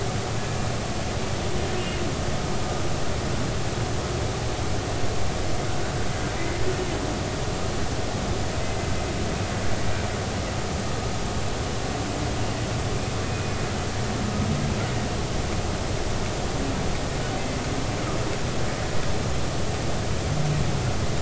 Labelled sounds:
6.4	6.6	humpback whale, 1.9 to 2.1 kHz
13.3	13.5	humpback whale, 2.4 to 2.5 kHz

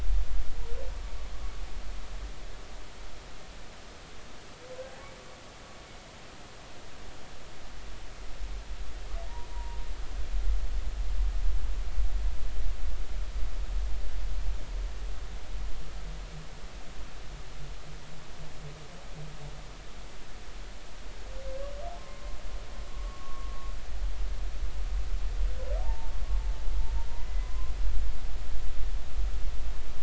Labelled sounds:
9.5	9.8	humpback whale, 0.90 to 0.99 kHz
22.0	23.5	humpback whale, 0.96 to 1.2 kHz
25.8	26.2	humpback whale, 0.80 to 0.96 kHz
27.1	27.7	humpback whale, 0.93 to 2.1 kHz

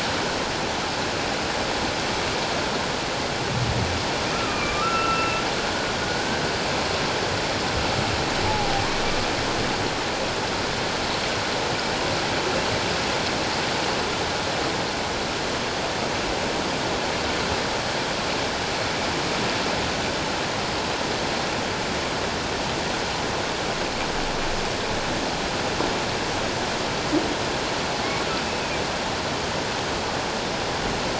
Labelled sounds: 4.3	5.4	humpback whale, 1.1 to 2.8 kHz
6.0	6.3	humpback whale, 1.4 to 1.6 kHz
8.5	8.7	humpback whale, 0.78 to 0.91 kHz
28.4	28.8	humpback whale, 2.3 to 2.7 kHz

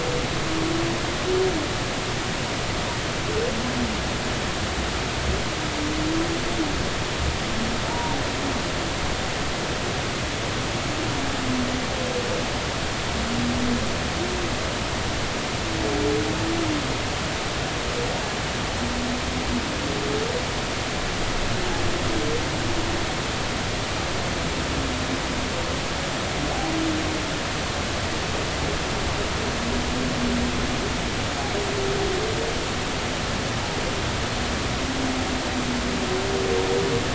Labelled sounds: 7.9	8.2	humpback whale, 0.86 to 1.1 kHz

